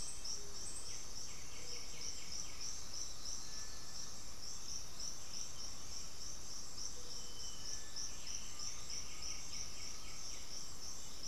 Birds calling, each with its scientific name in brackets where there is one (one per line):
Black-spotted Bare-eye (Phlegopsis nigromaculata)
Black-throated Antbird (Myrmophylax atrothorax)
White-winged Becard (Pachyramphus polychopterus)
Scaled Pigeon (Patagioenas speciosa)
Cinereous Tinamou (Crypturellus cinereus)
Undulated Tinamou (Crypturellus undulatus)